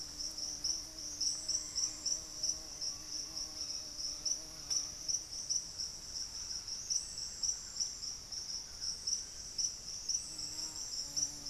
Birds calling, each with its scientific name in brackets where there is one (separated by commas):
Red-bellied Macaw (Orthopsittaca manilatus), Thrush-like Wren (Campylorhynchus turdinus), Black-faced Antthrush (Formicarius analis)